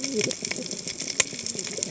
{"label": "biophony, cascading saw", "recorder": "HydroMoth"}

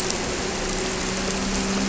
{"label": "anthrophony, boat engine", "recorder": "SoundTrap 300"}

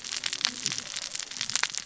{"label": "biophony, cascading saw", "recorder": "SoundTrap 600 or HydroMoth"}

